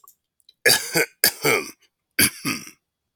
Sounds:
Cough